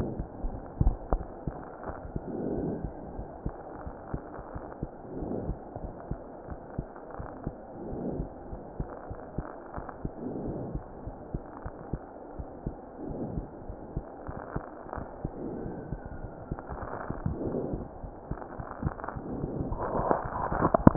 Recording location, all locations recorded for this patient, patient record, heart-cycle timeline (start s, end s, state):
aortic valve (AV)
aortic valve (AV)+pulmonary valve (PV)+tricuspid valve (TV)+mitral valve (MV)
#Age: Child
#Sex: Male
#Height: 72.0 cm
#Weight: 7.97 kg
#Pregnancy status: False
#Murmur: Absent
#Murmur locations: nan
#Most audible location: nan
#Systolic murmur timing: nan
#Systolic murmur shape: nan
#Systolic murmur grading: nan
#Systolic murmur pitch: nan
#Systolic murmur quality: nan
#Diastolic murmur timing: nan
#Diastolic murmur shape: nan
#Diastolic murmur grading: nan
#Diastolic murmur pitch: nan
#Diastolic murmur quality: nan
#Outcome: Abnormal
#Campaign: 2015 screening campaign
0.00	3.11	unannotated
3.11	3.26	S1
3.26	3.42	systole
3.42	3.51	S2
3.51	3.83	diastole
3.83	3.93	S1
3.93	4.10	systole
4.10	4.20	S2
4.20	4.52	diastole
4.52	4.62	S1
4.62	4.79	systole
4.79	4.88	S2
4.88	5.19	diastole
5.19	5.26	S1
5.26	5.46	systole
5.46	5.54	S2
5.54	5.82	diastole
5.82	5.94	S1
5.94	6.09	systole
6.09	6.16	S2
6.16	6.48	diastole
6.48	6.59	S1
6.59	6.74	systole
6.74	6.86	S2
6.86	7.16	diastole
7.16	7.25	S1
7.25	7.43	systole
7.43	7.53	S2
7.53	7.89	diastole
7.89	7.99	S1
7.99	8.17	systole
8.17	8.25	S2
8.25	8.52	diastole
8.52	8.62	S1
8.62	8.77	systole
8.77	8.86	S2
8.86	9.08	diastole
9.08	9.15	S1
9.15	9.35	systole
9.35	9.44	S2
9.44	9.74	diastole
9.74	9.83	S1
9.83	10.02	systole
10.02	10.09	S2
10.09	10.45	diastole
10.45	10.54	S1
10.54	10.73	systole
10.73	10.80	S2
10.80	11.05	diastole
11.05	11.14	S1
11.14	11.32	systole
11.32	11.40	S2
11.40	11.64	diastole
11.64	11.70	S1
11.70	11.90	systole
11.90	12.00	S2
12.00	12.35	diastole
12.35	12.46	S1
12.46	12.64	systole
12.64	12.71	S2
12.71	13.06	diastole
13.06	20.96	unannotated